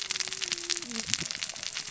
{"label": "biophony, cascading saw", "recorder": "SoundTrap 600 or HydroMoth"}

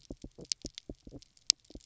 {"label": "biophony", "recorder": "SoundTrap 300"}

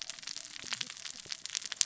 {"label": "biophony, cascading saw", "recorder": "SoundTrap 600 or HydroMoth"}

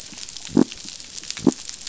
{"label": "biophony", "recorder": "SoundTrap 500"}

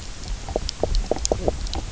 {"label": "biophony, knock croak", "recorder": "SoundTrap 300"}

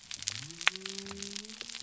{"label": "biophony", "recorder": "SoundTrap 300"}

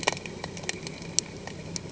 {"label": "anthrophony, boat engine", "recorder": "HydroMoth"}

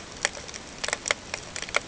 {"label": "ambient", "recorder": "HydroMoth"}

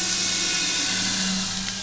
{"label": "anthrophony, boat engine", "recorder": "SoundTrap 500"}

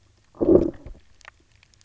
{"label": "biophony, low growl", "recorder": "SoundTrap 300"}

